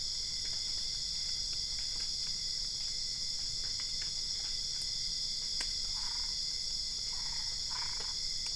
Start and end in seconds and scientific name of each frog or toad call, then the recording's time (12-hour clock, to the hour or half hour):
5.9	6.4	Boana albopunctata
7.1	8.1	Boana albopunctata
~3am